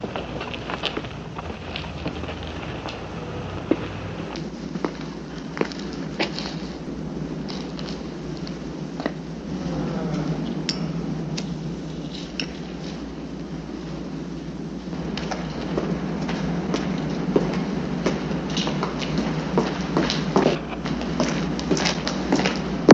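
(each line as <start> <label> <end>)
0.0 Very muffled footsteps. 12.3
14.7 Very muffled footsteps. 22.9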